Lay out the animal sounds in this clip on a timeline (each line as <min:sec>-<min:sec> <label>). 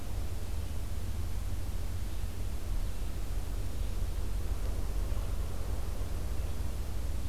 0:01.7-0:07.3 Red-eyed Vireo (Vireo olivaceus)